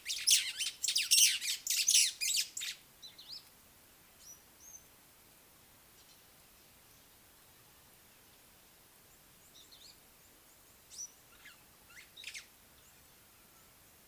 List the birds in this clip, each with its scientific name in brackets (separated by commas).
White-browed Sparrow-Weaver (Plocepasser mahali)